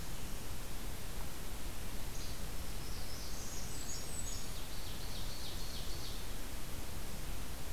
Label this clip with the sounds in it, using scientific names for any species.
Empidonax minimus, Setophaga caerulescens, Setophaga fusca, Seiurus aurocapilla